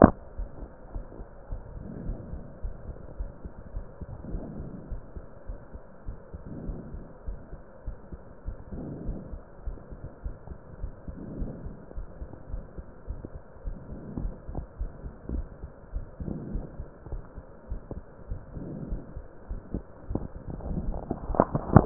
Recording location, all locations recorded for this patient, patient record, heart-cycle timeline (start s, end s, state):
aortic valve (AV)
aortic valve (AV)+pulmonary valve (PV)+tricuspid valve (TV)+mitral valve (MV)
#Age: nan
#Sex: Female
#Height: nan
#Weight: nan
#Pregnancy status: True
#Murmur: Absent
#Murmur locations: nan
#Most audible location: nan
#Systolic murmur timing: nan
#Systolic murmur shape: nan
#Systolic murmur grading: nan
#Systolic murmur pitch: nan
#Systolic murmur quality: nan
#Diastolic murmur timing: nan
#Diastolic murmur shape: nan
#Diastolic murmur grading: nan
#Diastolic murmur pitch: nan
#Diastolic murmur quality: nan
#Outcome: Normal
#Campaign: 2015 screening campaign
0.00	0.36	unannotated
0.36	0.50	S1
0.50	0.58	systole
0.58	0.68	S2
0.68	0.94	diastole
0.94	1.06	S1
1.06	1.18	systole
1.18	1.26	S2
1.26	1.50	diastole
1.50	1.64	S1
1.64	1.74	systole
1.74	1.82	S2
1.82	2.04	diastole
2.04	2.20	S1
2.20	2.30	systole
2.30	2.42	S2
2.42	2.64	diastole
2.64	2.76	S1
2.76	2.86	systole
2.86	2.96	S2
2.96	3.18	diastole
3.18	3.30	S1
3.30	3.40	systole
3.40	3.50	S2
3.50	3.74	diastole
3.74	3.86	S1
3.86	4.00	systole
4.00	4.10	S2
4.10	4.28	diastole
4.28	4.42	S1
4.42	4.56	systole
4.56	4.70	S2
4.70	4.90	diastole
4.90	5.02	S1
5.02	5.14	systole
5.14	5.24	S2
5.24	5.48	diastole
5.48	5.58	S1
5.58	5.74	systole
5.74	5.80	S2
5.80	6.08	diastole
6.08	6.18	S1
6.18	6.34	systole
6.34	6.44	S2
6.44	6.66	diastole
6.66	6.80	S1
6.80	6.94	systole
6.94	7.04	S2
7.04	7.28	diastole
7.28	7.40	S1
7.40	7.52	systole
7.52	7.60	S2
7.60	7.86	diastole
7.86	7.96	S1
7.96	8.08	systole
8.08	8.18	S2
8.18	8.48	diastole
8.48	8.58	S1
8.58	8.72	systole
8.72	8.86	S2
8.86	9.06	diastole
9.06	9.20	S1
9.20	9.30	systole
9.30	9.42	S2
9.42	9.66	diastole
9.66	9.78	S1
9.78	9.92	systole
9.92	10.00	S2
10.00	10.26	diastole
10.26	10.36	S1
10.36	10.48	systole
10.48	10.56	S2
10.56	10.82	diastole
10.82	10.94	S1
10.94	11.08	systole
11.08	11.16	S2
11.16	11.36	diastole
11.36	11.54	S1
11.54	11.64	systole
11.64	11.76	S2
11.76	11.98	diastole
11.98	12.08	S1
12.08	12.20	systole
12.20	12.28	S2
12.28	12.50	diastole
12.50	12.64	S1
12.64	12.78	systole
12.78	12.84	S2
12.84	13.08	diastole
13.08	13.20	S1
13.20	13.34	systole
13.34	13.40	S2
13.40	13.66	diastole
13.66	13.78	S1
13.78	13.90	systole
13.90	13.98	S2
13.98	14.22	diastole
14.22	14.36	S1
14.36	14.48	systole
14.48	14.60	S2
14.60	14.80	diastole
14.80	14.92	S1
14.92	15.04	systole
15.04	15.12	S2
15.12	15.32	diastole
15.32	15.48	S1
15.48	15.62	systole
15.62	15.70	S2
15.70	15.92	diastole
15.92	16.06	S1
16.06	16.20	systole
16.20	16.32	S2
16.32	16.50	diastole
16.50	16.68	S1
16.68	16.78	systole
16.78	16.86	S2
16.86	17.10	diastole
17.10	17.24	S1
17.24	17.36	systole
17.36	17.44	S2
17.44	17.70	diastole
17.70	17.82	S1
17.82	17.92	systole
17.92	18.04	S2
18.04	18.30	diastole
18.30	18.42	S1
18.42	18.54	systole
18.54	18.66	S2
18.66	18.86	diastole
18.86	19.02	S1
19.02	19.14	systole
19.14	19.24	S2
19.24	19.50	diastole
19.50	19.62	S1
19.62	19.72	systole
19.72	19.84	S2
19.84	20.08	diastole
20.08	20.17	S1
20.17	21.86	unannotated